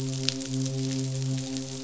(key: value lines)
label: biophony, midshipman
recorder: SoundTrap 500